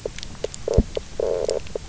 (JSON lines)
{"label": "biophony, knock croak", "recorder": "SoundTrap 300"}